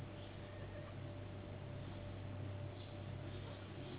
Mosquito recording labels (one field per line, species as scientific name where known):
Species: Anopheles gambiae s.s.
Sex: female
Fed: unfed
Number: one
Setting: insect culture